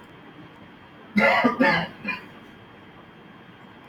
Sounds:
Cough